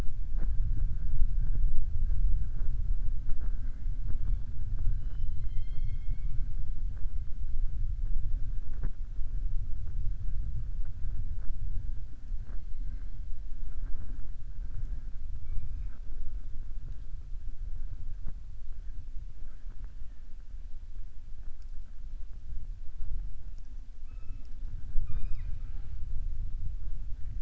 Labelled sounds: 4.9	6.4	killer whale, southern resident, 0.75 to 5.4 kHz

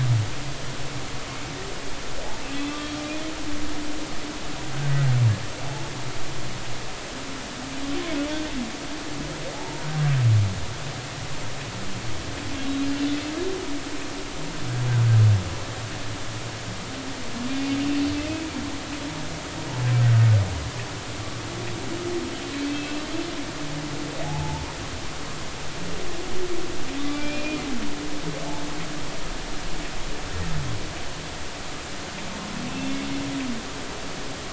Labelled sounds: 2.7	3.0	humpback whale, 3.2 to 3.3 kHz
4.7	5.1	humpback whale, 1.4 to 1.6 kHz
9.5	9.9	humpback whale, 0.80 to 0.99 kHz
17.5	17.7	humpback whale, 2.3 to 2.5 kHz
22.6	23.1	humpback whale, 2.4 to 2.8 kHz
24.2	24.6	humpback whale, 0.80 to 0.99 kHz
27.1	27.6	humpback whale, 2.3 to 2.5 kHz
32.7	33.0	humpback whale, 2.5 to 2.8 kHz

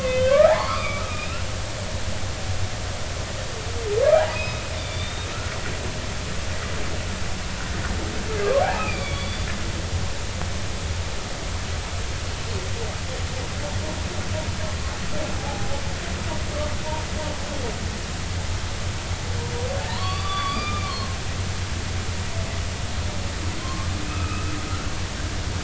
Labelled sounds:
0.0	1.5	humpback whale, 0.80 to 3.6 kHz
4.1	5.3	humpback whale, 0.80 to 5.2 kHz
8.6	9.5	humpback whale, 0.80 to 4.8 kHz
15.4	15.8	humpback whale, 0.80 to 0.90 kHz
19.9	20.8	humpback whale, 0.86 to 4.7 kHz
23.6	24.5	humpback whale, 0.99 to 2.7 kHz

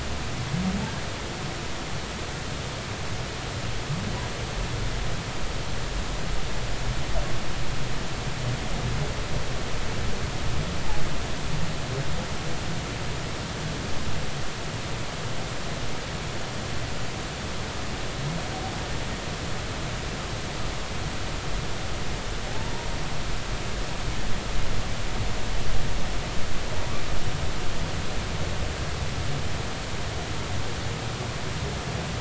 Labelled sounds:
22.5	22.9	humpback whale, 0.80 to 1.0 kHz

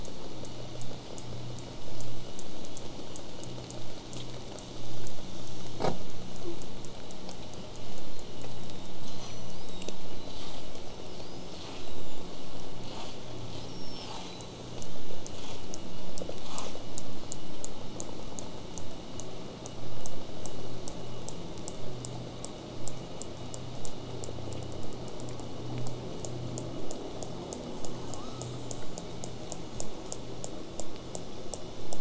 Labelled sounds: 7.5	7.8	killer whale, southern resident, J pod, whistle, 4.6 to 5.2 kHz
8.1	10.6	killer whale, southern resident, J pod, whistle, 3.4 to 8.0 kHz
10.9	12.2	killer whale, southern resident, J pod, whistle, 3.3 to 8.0 kHz
13.6	14.6	killer whale, southern resident, J pod, whistle, 3.7 to 8.0 kHz
28.1	29.2	killer whale, southern resident, J pod, 0.93 to 8.0 kHz

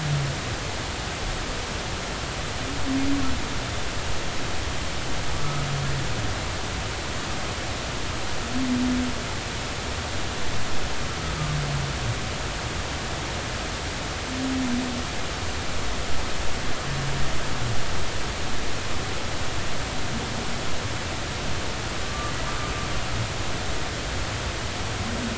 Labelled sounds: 22.0	22.3	humpback whale, 1.1 to 1.2 kHz

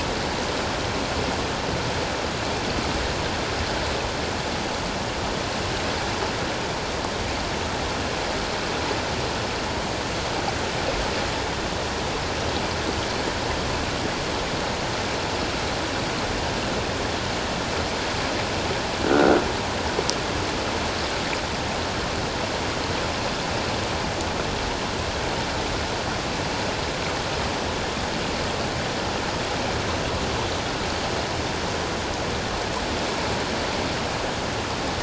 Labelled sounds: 19.1	19.4	croaking sound likely from a nearby submerged object, 1.3 to 1.6 kHz

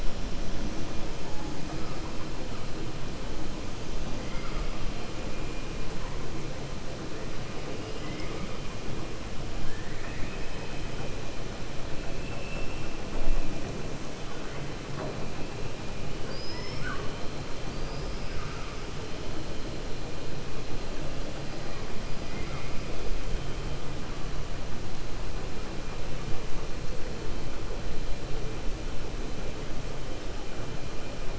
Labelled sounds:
4.2	4.7	killer whale, 1.1 to 3.2 kHz
7.9	8.5	killer whale, 0.49 to 3.1 kHz
9.6	10.4	killer whale, 1.1 to 2.6 kHz
16.2	17.1	killer whale, 0.40 to 5.4 kHz
22.2	22.8	killer whale, 1.1 to 3.2 kHz

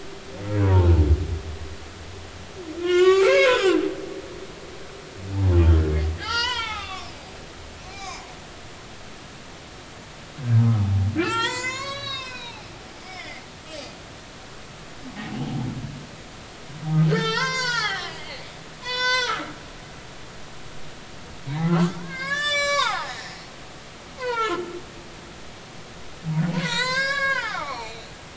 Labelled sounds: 0.6	0.9	humpback whale, 0.80 to 1.0 kHz
2.8	3.8	humpback whale, 0.93 to 5.5 kHz
6.2	7.1	humpback whale, 0.80 to 6.0 kHz
7.9	8.3	humpback whale, 0.86 to 5.6 kHz
10.4	12.7	humpback whale, 0.80 to 7.6 kHz
13.0	13.4	humpback whale, 1.8 to 2.3 kHz
17.0	18.2	humpback whale, 0.80 to 7.5 kHz
18.8	19.5	humpback whale, 0.90 to 7.1 kHz
21.7	23.4	humpback whale, 0.80 to 8.0 kHz
24.2	24.7	humpback whale, 0.83 to 3.1 kHz
26.6	28.1	humpback whale, 0.80 to 7.8 kHz

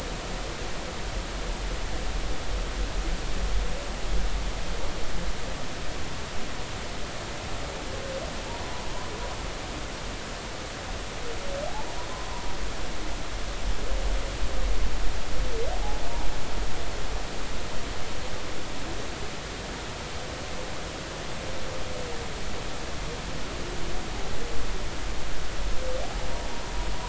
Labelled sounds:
8.5	8.8	humpback whale, 0.83 to 1.1 kHz
12.1	12.5	humpback whale, 0.93 to 1.1 kHz

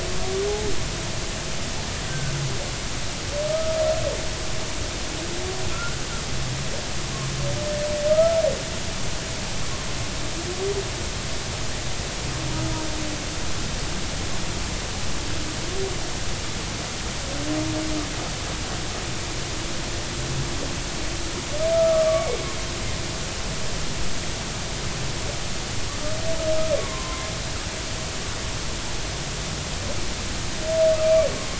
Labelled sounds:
2.1	2.3	humpback whale, 1.5 to 1.6 kHz
3.5	3.8	humpback whale, 1.2 to 1.3 kHz
5.7	6.0	humpback whale, 1.3 to 1.5 kHz
8.1	8.4	humpback whale, 1.2 to 1.4 kHz
21.7	22.3	humpback whale, 1.1 to 1.4 kHz
26.8	27.3	humpback whale, 0.96 to 1.2 kHz
31.0	31.5	humpback whale, 1.0 to 2.4 kHz

